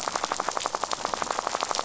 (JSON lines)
{"label": "biophony, rattle", "recorder": "SoundTrap 500"}